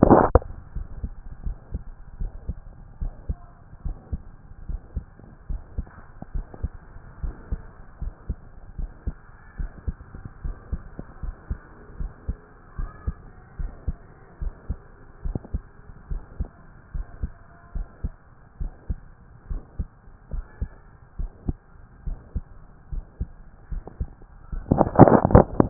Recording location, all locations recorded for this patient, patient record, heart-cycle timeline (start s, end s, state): pulmonary valve (PV)
aortic valve (AV)+pulmonary valve (PV)+tricuspid valve (TV)+mitral valve (MV)
#Age: Adolescent
#Sex: Male
#Height: 180.0 cm
#Weight: 103.3 kg
#Pregnancy status: False
#Murmur: Present
#Murmur locations: mitral valve (MV)+pulmonary valve (PV)+tricuspid valve (TV)
#Most audible location: tricuspid valve (TV)
#Systolic murmur timing: Holosystolic
#Systolic murmur shape: Plateau
#Systolic murmur grading: I/VI
#Systolic murmur pitch: Low
#Systolic murmur quality: Blowing
#Diastolic murmur timing: nan
#Diastolic murmur shape: nan
#Diastolic murmur grading: nan
#Diastolic murmur pitch: nan
#Diastolic murmur quality: nan
#Outcome: Abnormal
#Campaign: 2014 screening campaign
0.00	0.74	unannotated
0.74	0.86	S1
0.86	1.02	systole
1.02	1.12	S2
1.12	1.44	diastole
1.44	1.56	S1
1.56	1.72	systole
1.72	1.82	S2
1.82	2.20	diastole
2.20	2.32	S1
2.32	2.48	systole
2.48	2.56	S2
2.56	3.00	diastole
3.00	3.12	S1
3.12	3.28	systole
3.28	3.38	S2
3.38	3.84	diastole
3.84	3.96	S1
3.96	4.12	systole
4.12	4.22	S2
4.22	4.68	diastole
4.68	4.80	S1
4.80	4.94	systole
4.94	5.04	S2
5.04	5.48	diastole
5.48	5.60	S1
5.60	5.76	systole
5.76	5.86	S2
5.86	6.34	diastole
6.34	6.46	S1
6.46	6.62	systole
6.62	6.72	S2
6.72	7.22	diastole
7.22	7.34	S1
7.34	7.50	systole
7.50	7.60	S2
7.60	8.02	diastole
8.02	8.14	S1
8.14	8.28	systole
8.28	8.38	S2
8.38	8.78	diastole
8.78	8.90	S1
8.90	9.06	systole
9.06	9.16	S2
9.16	9.58	diastole
9.58	9.70	S1
9.70	9.86	systole
9.86	9.96	S2
9.96	10.44	diastole
10.44	10.56	S1
10.56	10.72	systole
10.72	10.82	S2
10.82	11.22	diastole
11.22	11.34	S1
11.34	11.50	systole
11.50	11.58	S2
11.58	11.98	diastole
11.98	12.12	S1
12.12	12.28	systole
12.28	12.36	S2
12.36	12.78	diastole
12.78	12.90	S1
12.90	13.06	systole
13.06	13.16	S2
13.16	13.60	diastole
13.60	13.72	S1
13.72	13.86	systole
13.86	13.96	S2
13.96	14.42	diastole
14.42	14.54	S1
14.54	14.68	systole
14.68	14.78	S2
14.78	15.24	diastole
15.24	15.38	S1
15.38	15.52	systole
15.52	15.62	S2
15.62	16.10	diastole
16.10	16.22	S1
16.22	16.38	systole
16.38	16.48	S2
16.48	16.94	diastole
16.94	17.06	S1
17.06	17.22	systole
17.22	17.32	S2
17.32	17.74	diastole
17.74	17.86	S1
17.86	18.02	systole
18.02	18.12	S2
18.12	18.60	diastole
18.60	18.72	S1
18.72	18.88	systole
18.88	18.98	S2
18.98	19.50	diastole
19.50	19.62	S1
19.62	19.78	systole
19.78	19.88	S2
19.88	20.32	diastole
20.32	20.44	S1
20.44	20.60	systole
20.60	20.70	S2
20.70	21.18	diastole
21.18	21.30	S1
21.30	21.46	systole
21.46	21.56	S2
21.56	22.06	diastole
22.06	22.18	S1
22.18	22.34	systole
22.34	22.44	S2
22.44	22.92	diastole
22.92	23.04	S1
23.04	23.20	systole
23.20	23.28	S2
23.28	23.72	diastole
23.72	23.84	S1
23.84	24.00	systole
24.00	24.10	S2
24.10	24.54	diastole
24.54	25.70	unannotated